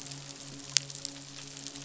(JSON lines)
{"label": "biophony, midshipman", "recorder": "SoundTrap 500"}